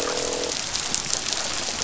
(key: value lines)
label: biophony, croak
recorder: SoundTrap 500